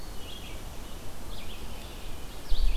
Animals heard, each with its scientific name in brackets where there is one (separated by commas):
Red-eyed Vireo (Vireo olivaceus), Winter Wren (Troglodytes hiemalis)